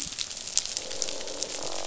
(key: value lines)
label: biophony, croak
recorder: SoundTrap 500